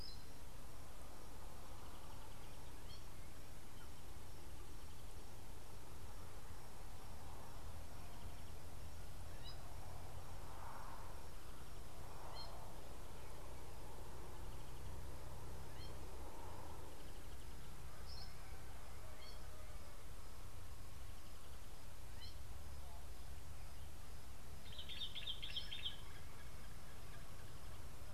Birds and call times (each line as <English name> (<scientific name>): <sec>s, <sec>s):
Gray-backed Camaroptera (Camaroptera brevicaudata): 12.3s
Meyer's Parrot (Poicephalus meyeri): 18.1s
Common Bulbul (Pycnonotus barbatus): 25.2s